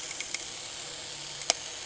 {"label": "anthrophony, boat engine", "recorder": "HydroMoth"}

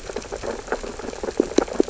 {"label": "biophony, sea urchins (Echinidae)", "recorder": "SoundTrap 600 or HydroMoth"}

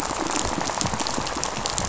{"label": "biophony, rattle", "recorder": "SoundTrap 500"}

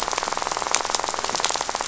{"label": "biophony, rattle", "recorder": "SoundTrap 500"}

